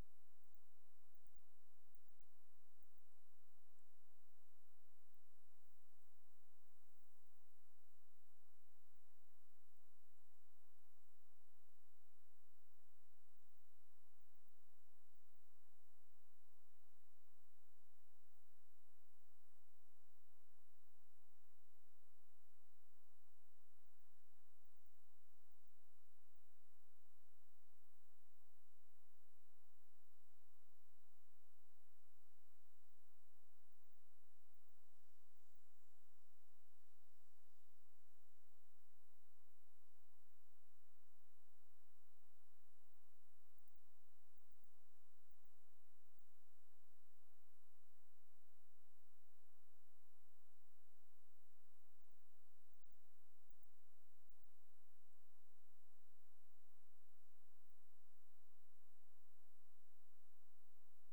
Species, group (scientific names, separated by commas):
Barbitistes serricauda, Orthoptera